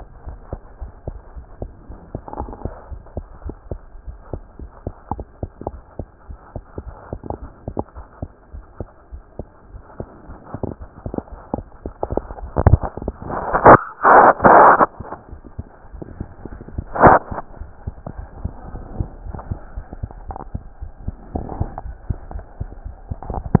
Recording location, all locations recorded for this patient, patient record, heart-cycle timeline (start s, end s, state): aortic valve (AV)
aortic valve (AV)+pulmonary valve (PV)+tricuspid valve (TV)+mitral valve (MV)
#Age: Child
#Sex: Female
#Height: 98.0 cm
#Weight: 15.9 kg
#Pregnancy status: False
#Murmur: Absent
#Murmur locations: nan
#Most audible location: nan
#Systolic murmur timing: nan
#Systolic murmur shape: nan
#Systolic murmur grading: nan
#Systolic murmur pitch: nan
#Systolic murmur quality: nan
#Diastolic murmur timing: nan
#Diastolic murmur shape: nan
#Diastolic murmur grading: nan
#Diastolic murmur pitch: nan
#Diastolic murmur quality: nan
#Outcome: Abnormal
#Campaign: 2015 screening campaign
0.00	0.24	unannotated
0.24	0.40	S1
0.40	0.50	systole
0.50	0.62	S2
0.62	0.78	diastole
0.78	0.92	S1
0.92	1.06	systole
1.06	1.20	S2
1.20	1.34	diastole
1.34	1.46	S1
1.46	1.60	systole
1.60	1.72	S2
1.72	1.88	diastole
1.88	1.98	S1
1.98	2.12	systole
2.12	2.22	S2
2.22	2.38	diastole
2.38	2.54	S1
2.54	2.64	systole
2.64	2.76	S2
2.76	2.90	diastole
2.90	3.02	S1
3.02	3.16	systole
3.16	3.28	S2
3.28	3.44	diastole
3.44	3.56	S1
3.56	3.70	systole
3.70	3.84	S2
3.84	4.04	diastole
4.04	4.18	S1
4.18	4.32	systole
4.32	4.44	S2
4.44	4.60	diastole
4.60	4.70	S1
4.70	4.82	systole
4.82	4.94	S2
4.94	5.10	diastole
5.10	5.26	S1
5.26	5.38	systole
5.38	5.50	S2
5.50	5.66	diastole
5.66	5.82	S1
5.82	5.98	systole
5.98	6.10	S2
6.10	6.28	diastole
6.28	6.38	S1
6.38	6.52	systole
6.52	6.62	S2
6.62	6.83	diastole
6.83	6.95	S1
6.95	7.10	systole
7.10	7.20	S2
7.20	7.38	diastole
7.38	7.50	S1
7.50	7.66	systole
7.66	7.78	S2
7.78	7.94	diastole
7.94	8.04	S1
8.04	8.18	systole
8.18	8.30	S2
8.30	8.50	diastole
8.50	8.62	S1
8.62	8.78	systole
8.78	8.90	S2
8.90	9.10	diastole
9.10	9.22	S1
9.22	9.38	systole
9.38	9.46	S2
9.46	9.72	diastole
9.72	9.81	S1
9.81	23.60	unannotated